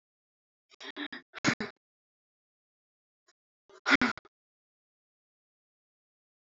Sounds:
Sigh